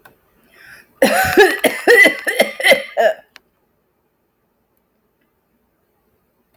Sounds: Cough